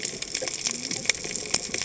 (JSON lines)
{"label": "biophony, cascading saw", "recorder": "HydroMoth"}